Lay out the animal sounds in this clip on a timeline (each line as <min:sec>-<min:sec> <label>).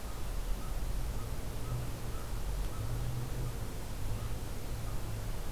0:00.0-0:05.5 American Crow (Corvus brachyrhynchos)